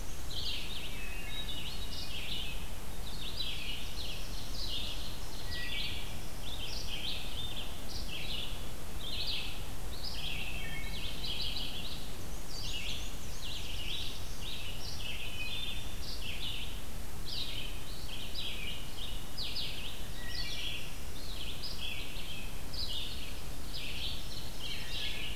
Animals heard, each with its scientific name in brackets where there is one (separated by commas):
Wood Thrush (Hylocichla mustelina), Black-and-white Warbler (Mniotilta varia), Black-throated Blue Warbler (Setophaga caerulescens), Hermit Thrush (Catharus guttatus), Red-eyed Vireo (Vireo olivaceus)